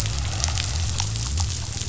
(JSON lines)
{"label": "biophony", "recorder": "SoundTrap 500"}